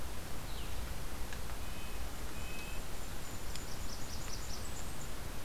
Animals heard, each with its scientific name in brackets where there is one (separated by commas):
Red-eyed Vireo (Vireo olivaceus), Golden-crowned Kinglet (Regulus satrapa), Red-breasted Nuthatch (Sitta canadensis), Blackburnian Warbler (Setophaga fusca)